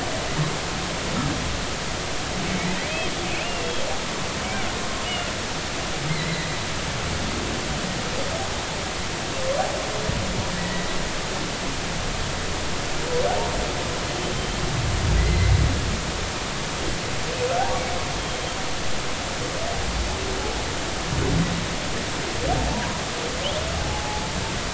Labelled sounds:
3.2	3.8	humpback whale, 2.4 to 2.9 kHz
5.0	5.3	humpback whale, 2.8 to 3.0 kHz
6.1	6.5	humpback whale, 1.8 to 4.2 kHz
10.6	10.9	humpback whale, 1.8 to 2.0 kHz
15.2	15.5	humpback whale, 1.9 to 2.1 kHz
18.2	18.6	humpback whale, 3.1 to 3.3 kHz
22.7	22.9	humpback whale, 0.83 to 1.1 kHz
23.8	24.2	humpback whale, 0.80 to 0.90 kHz

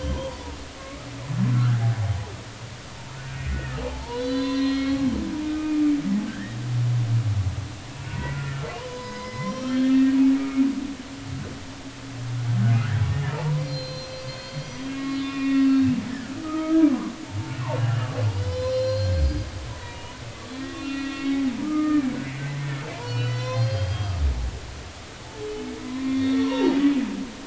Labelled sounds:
0.8	1.1	humpback whale, 1.0 to 1.3 kHz
1.5	1.8	humpback whale, 1.1 to 1.7 kHz
3.5	5.1	humpback whale, 0.80 to 4.7 kHz
5.4	6.6	humpback whale, 1.2 to 1.9 kHz
8.1	10.6	humpback whale, 0.90 to 5.1 kHz
13.0	15.7	humpback whale, 0.83 to 6.0 kHz
16.4	17.1	humpback whale, 0.96 to 1.3 kHz
18.4	20.2	humpback whale, 0.90 to 5.8 kHz
20.5	22.1	humpback whale, 1.2 to 4.2 kHz
23.0	24.2	humpback whale, 0.96 to 6.3 kHz
25.8	26.9	humpback whale, 0.86 to 3.8 kHz

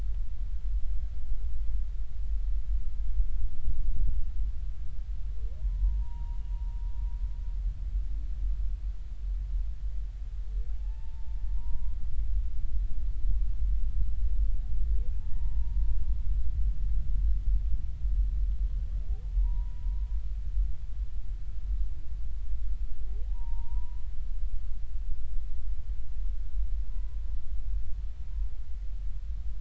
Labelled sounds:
5.6	6.4	humpback whale, 0.83 to 1.0 kHz
10.8	12.0	humpback whale, 0.83 to 1.1 kHz
15.2	15.8	humpback whale, 0.83 to 1.9 kHz
19.4	20.0	humpback whale, 0.86 to 1.1 kHz
23.3	24.0	humpback whale, 0.80 to 1.1 kHz
26.9	27.2	humpback whale, 0.96 to 1.0 kHz

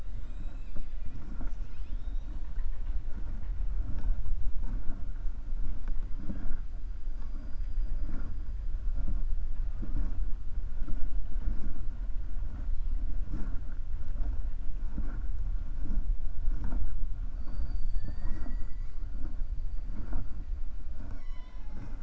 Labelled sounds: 20.9	22.0	killer whale, 0.24 to 7.8 kHz

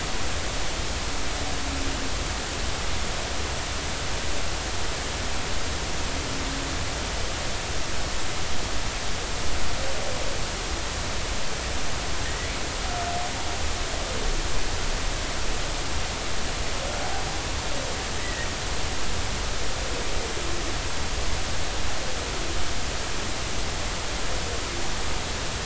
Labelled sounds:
12.2	12.5	humpback whale, 1.8 to 2.0 kHz
18.2	18.5	humpback whale, 1.7 to 2.0 kHz

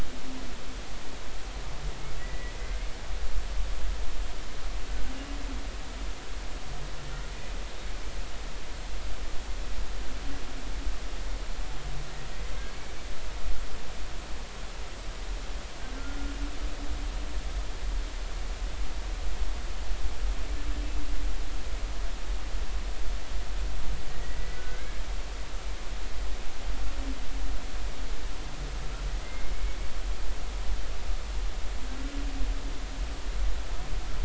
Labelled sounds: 2.2	2.8	humpback whale, 1.9 to 2.1 kHz
7.3	7.6	humpback whale, 2.4 to 2.5 kHz
16.0	16.4	humpback whale, 1.3 to 1.5 kHz
24.2	25.0	humpback whale, 1.4 to 2.3 kHz
29.2	29.5	humpback whale, 2.0 to 2.2 kHz

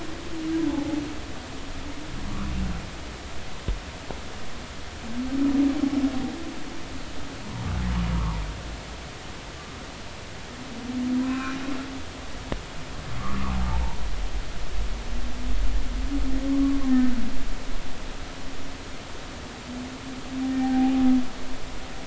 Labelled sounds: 8.1	8.4	humpback whale, 0.86 to 1.3 kHz
11.2	11.6	humpback whale, 0.96 to 2.7 kHz
13.2	14.0	humpback whale, 0.80 to 1.4 kHz
16.5	17.1	humpback whale, 1.0 to 1.9 kHz
20.5	20.9	humpback whale, 0.80 to 1.9 kHz

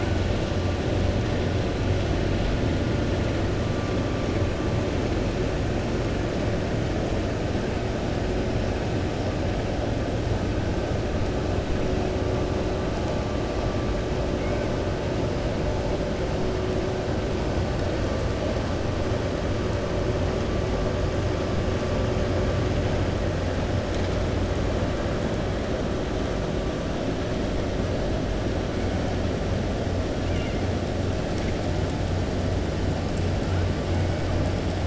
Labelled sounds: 30.2	30.6	killer whale, 1.4 to 3.5 kHz

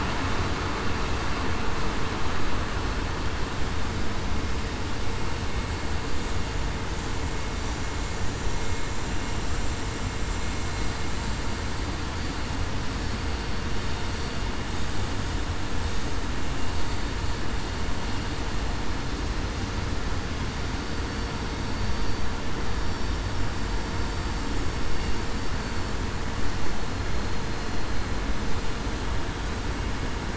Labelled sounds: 13.2	13.6	vessel noise, 4.50 to 4.52 kHz

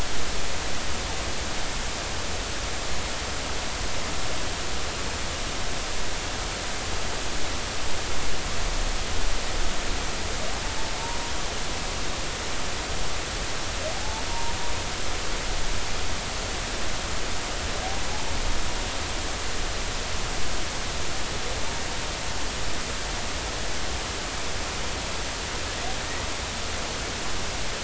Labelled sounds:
14.3	14.6	humpback whale, 0.90 to 1.0 kHz

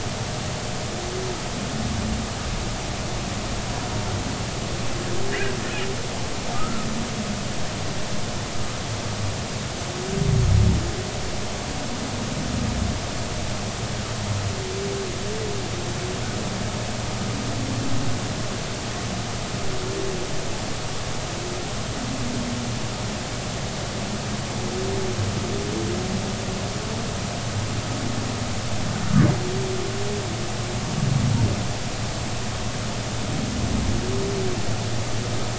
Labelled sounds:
6.5	6.9	humpback whale, 1.2 to 1.5 kHz
29.0	29.3	humpback whale, 1.3 to 1.6 kHz

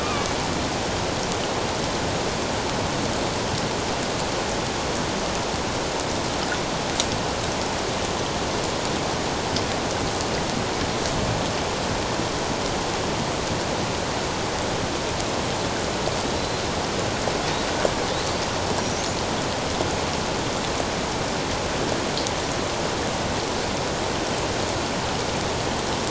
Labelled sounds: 0.0	0.4	killer whale, Bigg's (transient), 2.2 to 2.5 kHz
18.8	19.1	killer whale, Bigg's (transient), 5.6 to 6.5 kHz

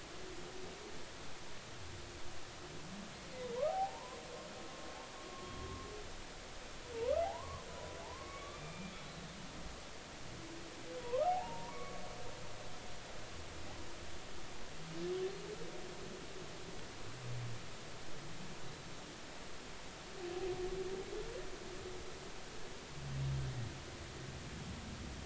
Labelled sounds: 3.7	4.2	humpback whale, 0.80 to 1.1 kHz
6.9	7.7	humpback whale, 0.80 to 1.4 kHz
8.0	8.9	humpback whale, 0.80 to 3.6 kHz
11.0	12.0	humpback whale, 0.80 to 1.4 kHz

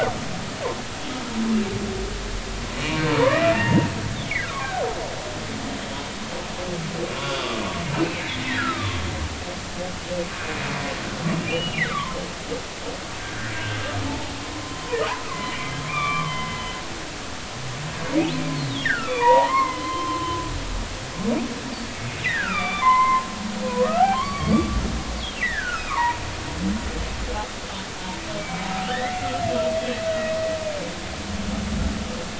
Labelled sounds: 2.7	3.9	humpback whale, 0.86 to 2.9 kHz
4.5	5.0	humpback whale, 0.80 to 1.7 kHz
7.2	7.5	humpback whale, 1.3 to 3.5 kHz
8.1	9.0	humpback whale, 1.0 to 2.4 kHz
11.4	12.2	humpback whale, 0.93 to 3.0 kHz
13.2	13.8	humpback whale, 1.4 to 1.8 kHz
14.1	14.3	humpback whale, 0.80 to 0.93 kHz
14.6	16.6	humpback whale, 0.93 to 2.5 kHz
18.8	20.4	humpback whale, 0.80 to 3.2 kHz
22.2	23.3	humpback whale, 0.80 to 3.7 kHz
23.8	24.8	humpback whale, 0.99 to 4.6 kHz
25.4	26.2	humpback whale, 0.83 to 2.6 kHz
28.4	29.2	humpback whale, 1.7 to 2.4 kHz
30.1	30.3	humpback whale, 1.9 to 2.0 kHz
30.6	30.9	humpback whale, 2.2 to 2.5 kHz

